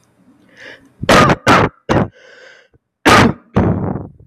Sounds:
Cough